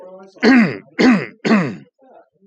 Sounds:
Throat clearing